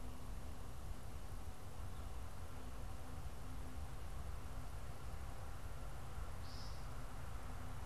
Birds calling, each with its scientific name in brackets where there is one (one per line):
American Woodcock (Scolopax minor)